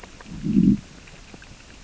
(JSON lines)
{"label": "biophony, growl", "recorder": "SoundTrap 600 or HydroMoth"}